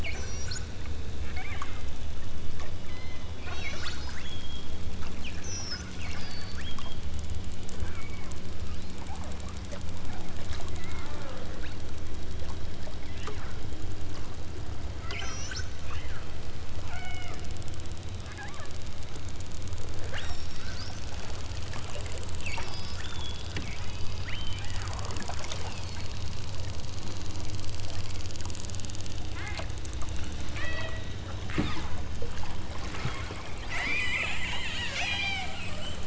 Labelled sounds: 0.0	0.6	killer whale, southern Alaska resident, 1.8 to 8.0 kHz
1.3	1.7	killer whale, southern Alaska resident, 0.99 to 3.2 kHz
2.8	4.6	killer whale, southern Alaska resident, 0.81 to 8.0 kHz
5.3	6.7	killer whale, southern Alaska resident, 1.2 to 8.0 kHz
8.9	9.3	killer whale, southern Alaska resident, 0.47 to 1.8 kHz
10.1	10.3	killer whale, southern Alaska resident, 0.51 to 1.8 kHz
15.0	16.2	killer whale, southern Alaska resident, 0.90 to 8.0 kHz
16.9	17.5	killer whale, southern Alaska resident, 0.43 to 5.6 kHz
18.3	18.8	killer whale, southern Alaska resident, 0.60 to 2.6 kHz
20.1	20.8	killer whale, southern Alaska resident, 1.2 to 7.9 kHz
22.3	25.1	killer whale, southern Alaska resident, 0.77 to 5.9 kHz
25.5	26.2	killer whale, southern Alaska resident, 1.8 to 4.6 kHz
29.3	29.7	killer whale, southern Alaska resident, 0.39 to 3.3 kHz
30.5	31.0	killer whale, southern Alaska resident, 0.69 to 5.0 kHz
31.5	31.9	killer whale, southern Alaska resident, 0.51 to 5.7 kHz
33.7	35.6	killer whale, southern Alaska resident, 0.30 to 8.0 kHz

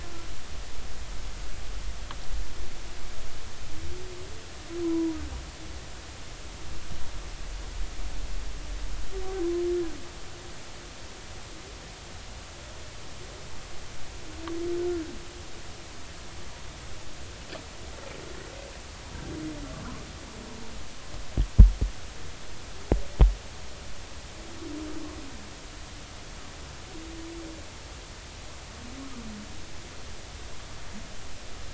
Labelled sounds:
4.8	5.2	humpback whale, 0.93 to 1.1 kHz

